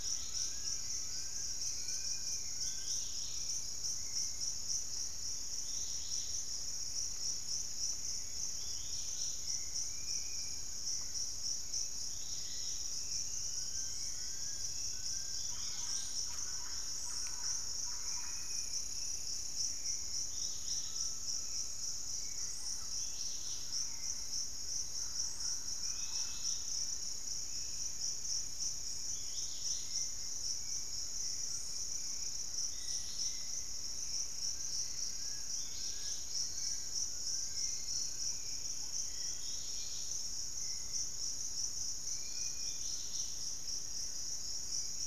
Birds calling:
Hauxwell's Thrush (Turdus hauxwelli), Thrush-like Wren (Campylorhynchus turdinus), Dusky-capped Flycatcher (Myiarchus tuberculifer), unidentified bird, Undulated Tinamou (Crypturellus undulatus), Dusky-capped Greenlet (Pachysylvia hypoxantha), Fasciated Antshrike (Cymbilaimus lineatus)

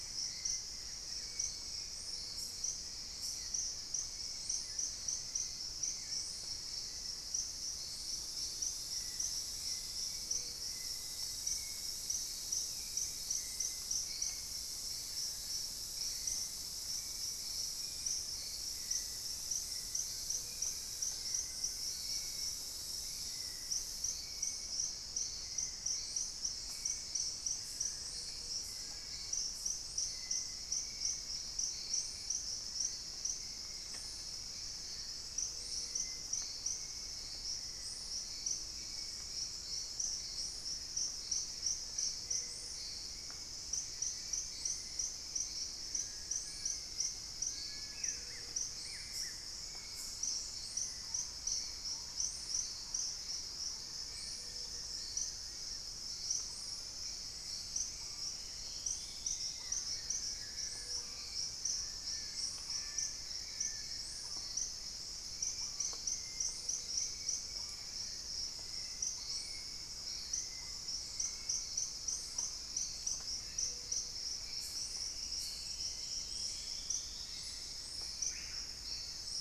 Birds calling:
Hauxwell's Thrush (Turdus hauxwelli), Buff-throated Woodcreeper (Xiphorhynchus guttatus), Plain-winged Antshrike (Thamnophilus schistaceus), Gray-fronted Dove (Leptotila rufaxilla), Thrush-like Wren (Campylorhynchus turdinus), Screaming Piha (Lipaugus vociferans), unidentified bird, Long-billed Woodcreeper (Nasica longirostris), Dusky-throated Antshrike (Thamnomanes ardesiacus)

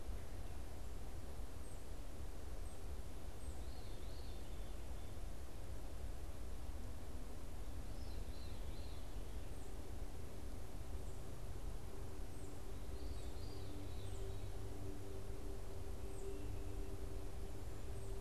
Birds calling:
Tufted Titmouse (Baeolophus bicolor), Veery (Catharus fuscescens)

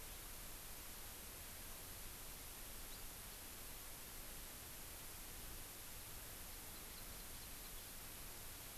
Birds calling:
House Finch (Haemorhous mexicanus), Hawaii Amakihi (Chlorodrepanis virens)

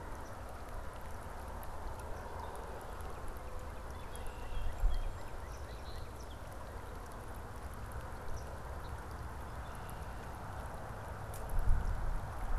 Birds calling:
Red-winged Blackbird (Agelaius phoeniceus), Northern Cardinal (Cardinalis cardinalis)

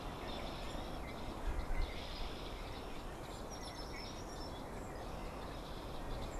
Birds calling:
Red-winged Blackbird (Agelaius phoeniceus)

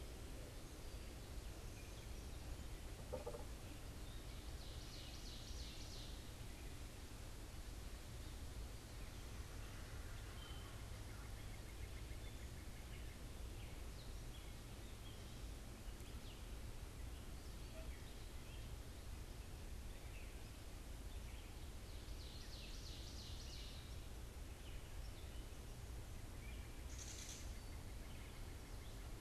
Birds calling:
Ovenbird (Seiurus aurocapilla), Gray Catbird (Dumetella carolinensis), unidentified bird

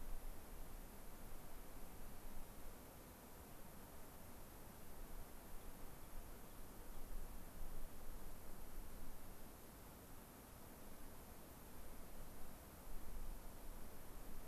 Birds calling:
Rock Wren (Salpinctes obsoletus)

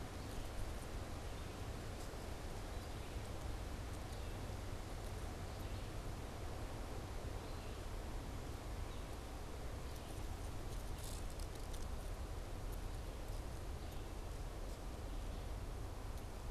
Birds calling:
Red-eyed Vireo (Vireo olivaceus)

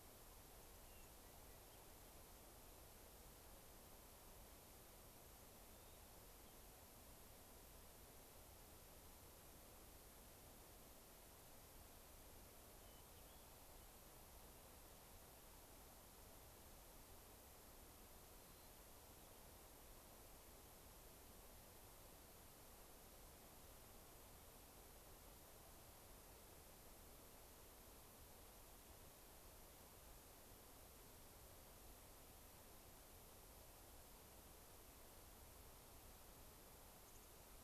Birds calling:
White-crowned Sparrow (Zonotrichia leucophrys), Hermit Thrush (Catharus guttatus), Dark-eyed Junco (Junco hyemalis)

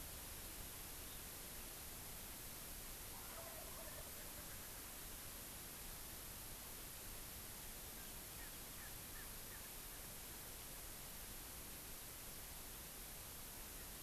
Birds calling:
Wild Turkey (Meleagris gallopavo), Erckel's Francolin (Pternistis erckelii)

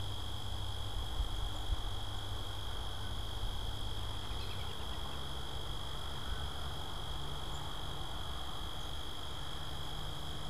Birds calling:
American Robin (Turdus migratorius)

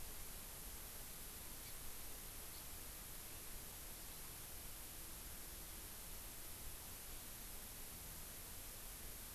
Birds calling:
Hawaii Amakihi (Chlorodrepanis virens)

